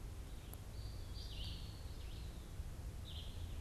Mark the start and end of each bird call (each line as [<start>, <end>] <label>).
[0.00, 3.52] Red-eyed Vireo (Vireo olivaceus)
[0.62, 2.02] Eastern Wood-Pewee (Contopus virens)
[1.82, 2.42] unidentified bird